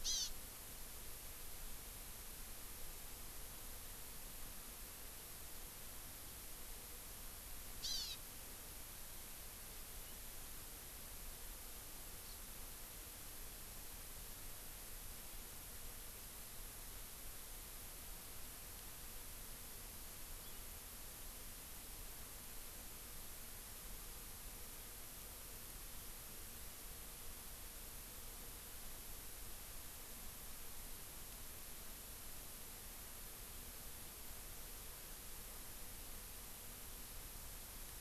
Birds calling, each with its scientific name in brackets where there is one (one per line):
Hawaii Amakihi (Chlorodrepanis virens)